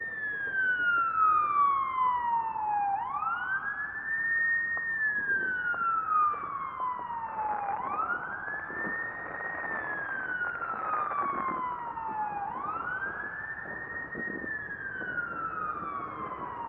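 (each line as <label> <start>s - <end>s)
A police car siren sounds loudly in the distance. 0.0s - 16.7s
Faint crackling sound, possibly of flames or wind. 5.2s - 16.7s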